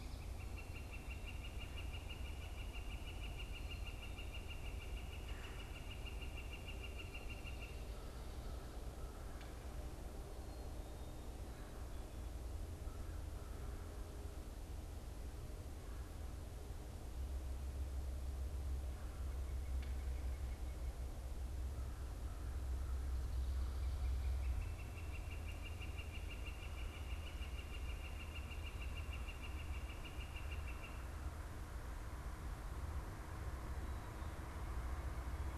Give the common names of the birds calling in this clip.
Northern Flicker